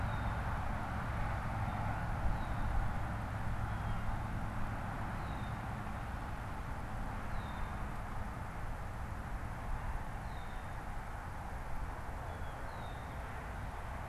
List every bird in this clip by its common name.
Red-winged Blackbird, Blue Jay